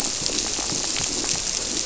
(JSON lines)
{"label": "biophony", "recorder": "SoundTrap 300"}